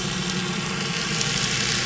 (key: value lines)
label: anthrophony, boat engine
recorder: SoundTrap 500